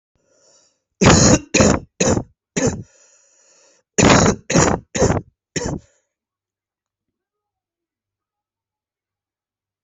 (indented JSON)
{
  "expert_labels": [
    {
      "quality": "good",
      "cough_type": "wet",
      "dyspnea": false,
      "wheezing": false,
      "stridor": false,
      "choking": false,
      "congestion": false,
      "nothing": true,
      "diagnosis": "lower respiratory tract infection",
      "severity": "mild"
    }
  ],
  "age": 30,
  "gender": "male",
  "respiratory_condition": false,
  "fever_muscle_pain": false,
  "status": "symptomatic"
}